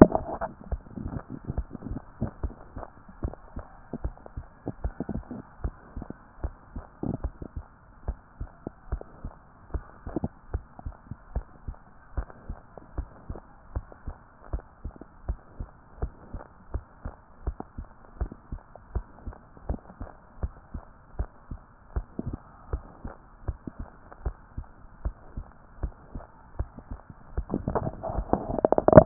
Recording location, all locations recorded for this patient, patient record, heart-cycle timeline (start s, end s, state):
mitral valve (MV)
pulmonary valve (PV)+tricuspid valve (TV)+mitral valve (MV)
#Age: nan
#Sex: Female
#Height: nan
#Weight: nan
#Pregnancy status: True
#Murmur: Absent
#Murmur locations: nan
#Most audible location: nan
#Systolic murmur timing: nan
#Systolic murmur shape: nan
#Systolic murmur grading: nan
#Systolic murmur pitch: nan
#Systolic murmur quality: nan
#Diastolic murmur timing: nan
#Diastolic murmur shape: nan
#Diastolic murmur grading: nan
#Diastolic murmur pitch: nan
#Diastolic murmur quality: nan
#Outcome: Normal
#Campaign: 2014 screening campaign
0.00	10.34	unannotated
10.34	10.52	diastole
10.52	10.64	S1
10.64	10.84	systole
10.84	10.94	S2
10.94	11.34	diastole
11.34	11.46	S1
11.46	11.66	systole
11.66	11.76	S2
11.76	12.16	diastole
12.16	12.28	S1
12.28	12.48	systole
12.48	12.58	S2
12.58	12.96	diastole
12.96	13.08	S1
13.08	13.28	systole
13.28	13.38	S2
13.38	13.74	diastole
13.74	13.86	S1
13.86	14.06	systole
14.06	14.16	S2
14.16	14.52	diastole
14.52	14.64	S1
14.64	14.84	systole
14.84	14.94	S2
14.94	15.26	diastole
15.26	15.38	S1
15.38	15.58	systole
15.58	15.68	S2
15.68	16.00	diastole
16.00	16.12	S1
16.12	16.32	systole
16.32	16.42	S2
16.42	16.72	diastole
16.72	16.84	S1
16.84	17.04	systole
17.04	17.14	S2
17.14	17.46	diastole
17.46	17.56	S1
17.56	17.78	systole
17.78	17.86	S2
17.86	18.20	diastole
18.20	18.32	S1
18.32	18.52	systole
18.52	18.60	S2
18.60	18.94	diastole
18.94	19.06	S1
19.06	19.26	systole
19.26	19.34	S2
19.34	19.68	diastole
19.68	19.80	S1
19.80	20.00	systole
20.00	20.10	S2
20.10	20.42	diastole
20.42	20.54	S1
20.54	20.74	systole
20.74	20.84	S2
20.84	21.18	diastole
21.18	21.30	S1
21.30	21.50	systole
21.50	21.60	S2
21.60	21.94	diastole
21.94	22.06	S1
22.06	22.26	systole
22.26	22.38	S2
22.38	22.72	diastole
22.72	22.84	S1
22.84	23.04	systole
23.04	23.14	S2
23.14	23.46	diastole
23.46	23.58	S1
23.58	23.78	systole
23.78	23.88	S2
23.88	24.24	diastole
24.24	24.36	S1
24.36	24.56	systole
24.56	24.66	S2
24.66	25.04	diastole
25.04	25.16	S1
25.16	25.36	systole
25.36	25.46	S2
25.46	25.82	diastole
25.82	25.94	S1
25.94	26.14	systole
26.14	26.24	S2
26.24	26.58	diastole
26.58	26.70	S1
26.70	26.90	systole
26.90	27.00	S2
27.00	27.36	diastole
27.36	29.06	unannotated